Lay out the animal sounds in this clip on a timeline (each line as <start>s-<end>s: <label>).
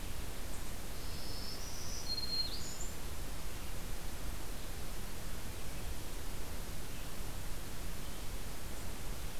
1.0s-3.0s: Black-throated Green Warbler (Setophaga virens)